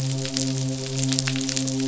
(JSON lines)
{"label": "biophony, midshipman", "recorder": "SoundTrap 500"}